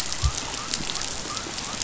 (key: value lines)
label: biophony
recorder: SoundTrap 500